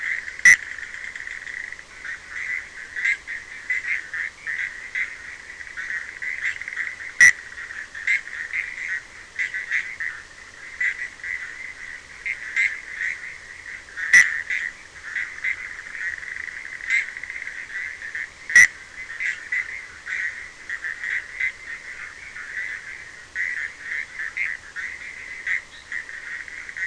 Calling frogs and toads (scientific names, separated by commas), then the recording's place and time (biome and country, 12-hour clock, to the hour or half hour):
Boana bischoffi
Atlantic Forest, Brazil, 1:30am